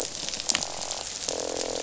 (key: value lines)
label: biophony, croak
recorder: SoundTrap 500